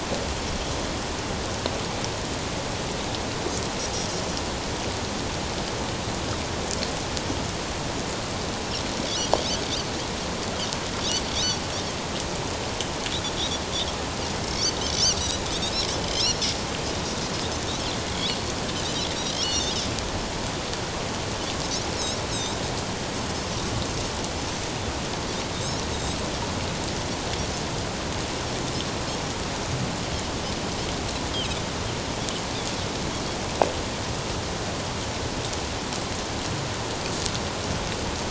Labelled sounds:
11.3	11.6	Pacific white-sided dolphin, 5.5 to 6.1 kHz
14.3	15.4	Pacific white-sided dolphin, 2.0 to 6.2 kHz
16.0	16.4	Pacific white-sided dolphin, 4.8 to 5.9 kHz
19.4	19.7	Pacific white-sided dolphin, 4.2 to 5.9 kHz
22.3	22.6	Pacific white-sided dolphin, 7.2 to 7.9 kHz
25.5	26.2	Pacific white-sided dolphin, 3.6 to 4.0 kHz

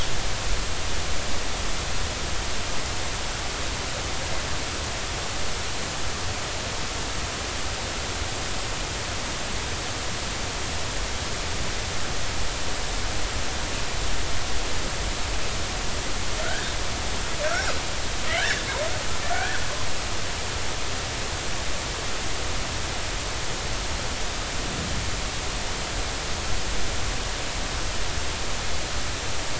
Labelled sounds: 16.4	16.7	killer whale, northern resident, G clan, 1.3 to 1.8 kHz
18.4	18.7	killer whale, northern resident, G clan, 1.4 to 2.0 kHz
19.3	19.6	killer whale, northern resident, G clan, 1.4 to 1.8 kHz

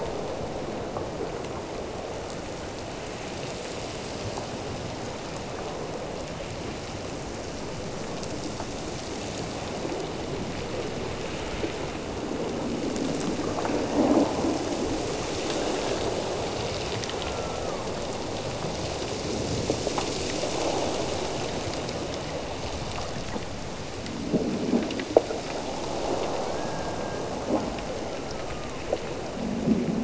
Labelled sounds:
17.1	18.0	killer whale, Bigg's (transient), Gulf of Alaska transient, 0.84 to 1.5 kHz
26.3	27.4	killer whale, Bigg's (transient), Gulf of Alaska transient, 1.3 to 1.8 kHz
28.0	28.9	killer whale, Bigg's (transient), Gulf of Alaska transient, 0.88 to 1.5 kHz

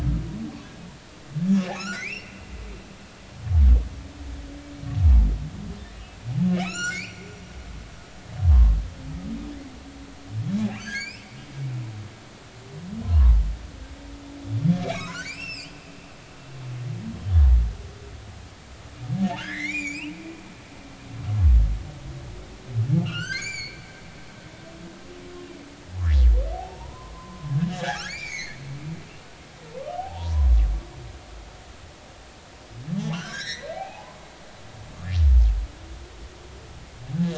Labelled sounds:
1.7	2.5	humpback whale, 1.2 to 5.9 kHz
5.9	6.2	humpback whale, 2.4 to 2.7 kHz
6.5	7.2	humpback whale, 1.2 to 7.4 kHz
8.5	8.8	humpback whale, 0.86 to 1.2 kHz
10.8	11.3	humpback whale, 1.5 to 7.7 kHz
13.0	13.4	humpback whale, 0.83 to 1.2 kHz
14.8	15.8	humpback whale, 0.96 to 8.0 kHz
19.3	20.1	humpback whale, 1.3 to 7.7 kHz
23.0	23.9	humpback whale, 1.1 to 7.2 kHz
26.5	28.6	humpback whale, 0.80 to 7.2 kHz
30.0	30.5	humpback whale, 0.80 to 1.1 kHz
33.1	34.2	humpback whale, 0.80 to 6.0 kHz

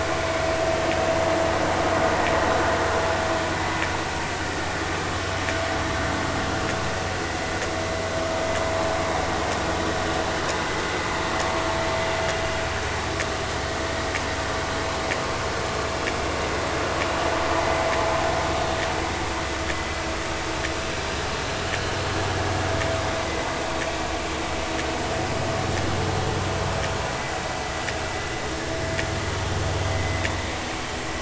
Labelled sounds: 3.5	3.8	vessel noise, 1.95 to 2.05 kHz
29.9	30.2	vessel noise, 2.0 to 2.1 kHz

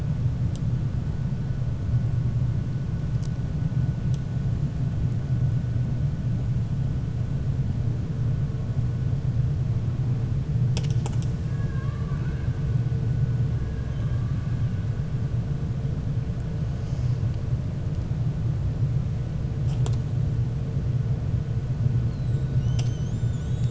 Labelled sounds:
11.5	12.5	killer whale, 0.96 to 2.8 kHz

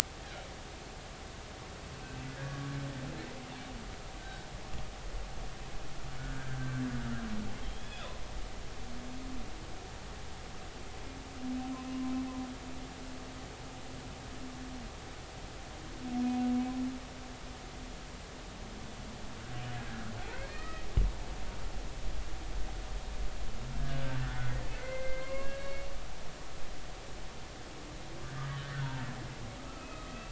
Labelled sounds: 2.0	2.6	humpback whale, 1.6 to 2.7 kHz
4.2	4.5	humpback whale, 1.5 to 1.6 kHz
6.2	6.8	humpback whale, 1.3 to 1.6 kHz
7.7	8.1	humpback whale, 3.2 to 3.7 kHz
16.2	16.5	humpback whale, 2.46 to 2.53 kHz
20.5	20.8	humpback whale, 1.2 to 2.0 kHz
23.8	25.9	humpback whale, 0.96 to 4.5 kHz
28.5	28.8	humpback whale, 1.8 to 2.0 kHz
29.8	30.2	humpback whale, 1.2 to 2.6 kHz

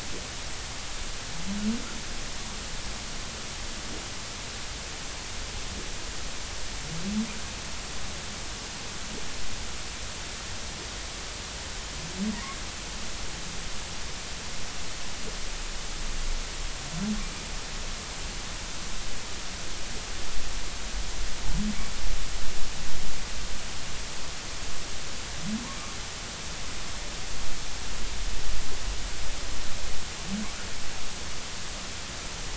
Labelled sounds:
17.2	17.5	humpback whale, 2.3 to 2.4 kHz

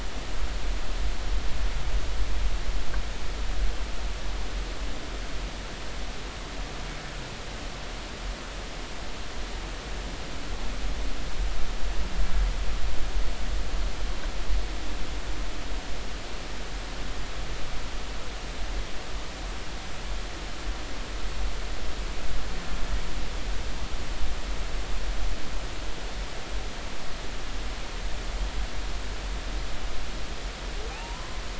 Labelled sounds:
30.9	31.4	humpback whale, 0.80 to 1.1 kHz

